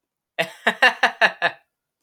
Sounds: Laughter